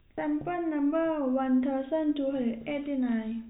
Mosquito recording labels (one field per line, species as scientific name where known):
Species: no mosquito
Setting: cup